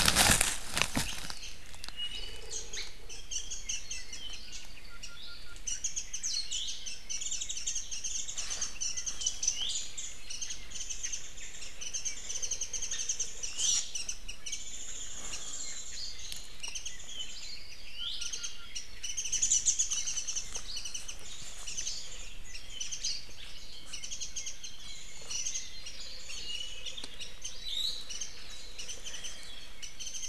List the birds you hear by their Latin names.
Zosterops japonicus, Drepanis coccinea, Leiothrix lutea